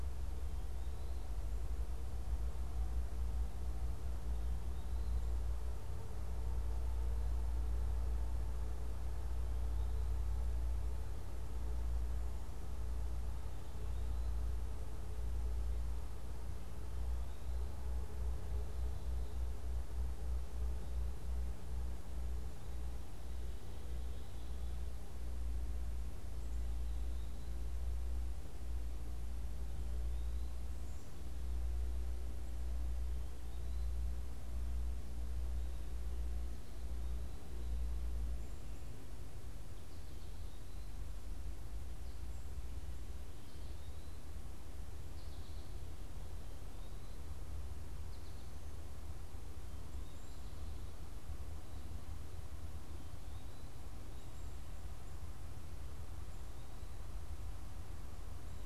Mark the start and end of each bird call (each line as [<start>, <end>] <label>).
[39.82, 50.82] American Goldfinch (Spinus tristis)